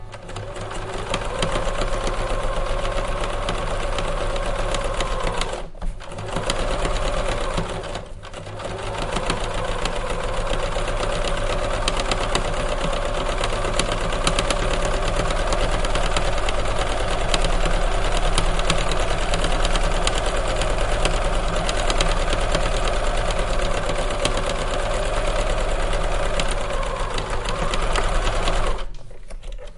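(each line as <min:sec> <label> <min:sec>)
0:00.0 A continuous mechanical whir from a sewing machine, nearly stopping twice before quickly fading out. 0:29.8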